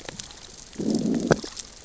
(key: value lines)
label: biophony, growl
recorder: SoundTrap 600 or HydroMoth